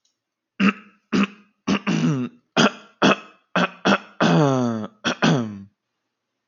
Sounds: Throat clearing